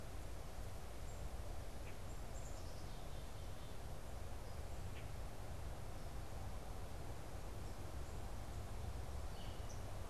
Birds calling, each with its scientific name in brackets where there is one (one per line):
Common Grackle (Quiscalus quiscula)
Black-capped Chickadee (Poecile atricapillus)
unidentified bird